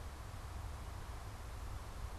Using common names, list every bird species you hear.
Veery